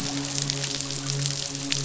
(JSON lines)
{"label": "biophony, midshipman", "recorder": "SoundTrap 500"}